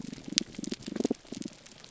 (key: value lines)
label: biophony, damselfish
recorder: SoundTrap 300